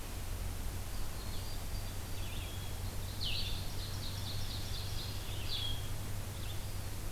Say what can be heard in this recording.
Blue-headed Vireo, Red-eyed Vireo, Song Sparrow, Ovenbird